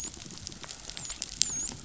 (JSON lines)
{"label": "biophony, dolphin", "recorder": "SoundTrap 500"}